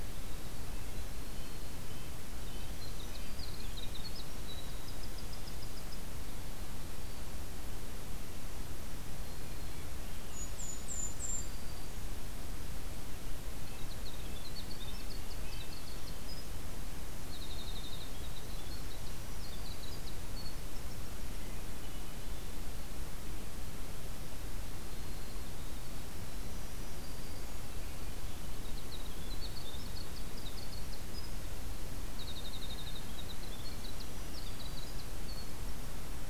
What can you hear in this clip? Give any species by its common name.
Red-breasted Nuthatch, Winter Wren, Swainson's Thrush, Golden-crowned Kinglet, Black-throated Green Warbler, Black-capped Chickadee